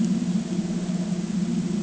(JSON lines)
{"label": "ambient", "recorder": "HydroMoth"}